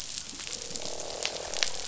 {"label": "biophony, croak", "recorder": "SoundTrap 500"}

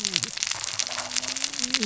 {"label": "biophony, cascading saw", "recorder": "SoundTrap 600 or HydroMoth"}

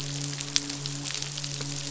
{"label": "biophony, midshipman", "recorder": "SoundTrap 500"}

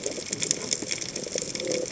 {"label": "biophony", "recorder": "HydroMoth"}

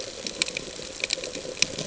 {"label": "ambient", "recorder": "HydroMoth"}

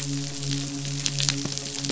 {"label": "biophony, midshipman", "recorder": "SoundTrap 500"}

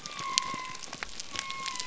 {"label": "biophony", "recorder": "SoundTrap 300"}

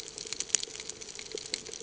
{"label": "ambient", "recorder": "HydroMoth"}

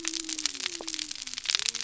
{"label": "biophony", "recorder": "SoundTrap 300"}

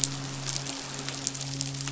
{"label": "biophony, midshipman", "recorder": "SoundTrap 500"}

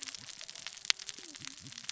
{"label": "biophony, cascading saw", "recorder": "SoundTrap 600 or HydroMoth"}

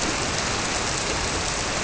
{"label": "biophony", "recorder": "SoundTrap 300"}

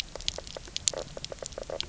{"label": "biophony, knock croak", "recorder": "SoundTrap 300"}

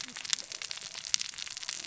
{"label": "biophony, cascading saw", "recorder": "SoundTrap 600 or HydroMoth"}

